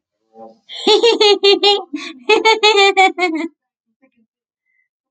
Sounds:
Laughter